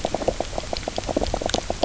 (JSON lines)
{"label": "biophony, knock croak", "recorder": "SoundTrap 300"}